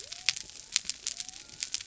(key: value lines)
label: biophony
recorder: SoundTrap 300